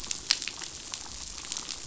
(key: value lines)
label: biophony, damselfish
recorder: SoundTrap 500